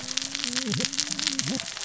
{"label": "biophony, cascading saw", "recorder": "SoundTrap 600 or HydroMoth"}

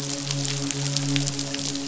{"label": "biophony, midshipman", "recorder": "SoundTrap 500"}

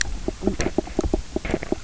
{"label": "biophony, knock croak", "recorder": "SoundTrap 300"}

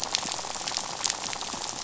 {"label": "biophony, rattle", "recorder": "SoundTrap 500"}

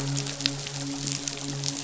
{"label": "biophony, midshipman", "recorder": "SoundTrap 500"}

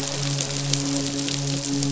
{"label": "biophony, midshipman", "recorder": "SoundTrap 500"}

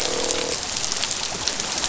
{"label": "biophony, croak", "recorder": "SoundTrap 500"}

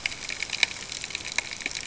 {"label": "ambient", "recorder": "HydroMoth"}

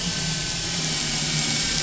{"label": "anthrophony, boat engine", "recorder": "SoundTrap 500"}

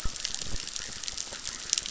{"label": "biophony, chorus", "recorder": "SoundTrap 600"}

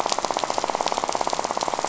{"label": "biophony, rattle", "recorder": "SoundTrap 500"}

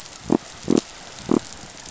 {"label": "biophony", "recorder": "SoundTrap 500"}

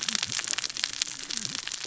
{"label": "biophony, cascading saw", "recorder": "SoundTrap 600 or HydroMoth"}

